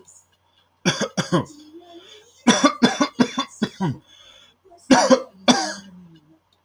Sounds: Cough